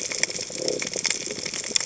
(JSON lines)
{"label": "biophony", "recorder": "HydroMoth"}